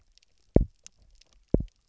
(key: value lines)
label: biophony, double pulse
recorder: SoundTrap 300